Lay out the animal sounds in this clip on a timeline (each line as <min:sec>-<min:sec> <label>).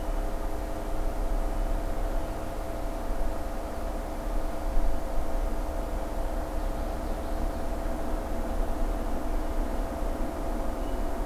0:06.2-0:07.8 Common Yellowthroat (Geothlypis trichas)